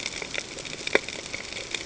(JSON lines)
{"label": "ambient", "recorder": "HydroMoth"}